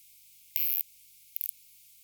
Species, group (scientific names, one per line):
Isophya tosevski
Orthoptera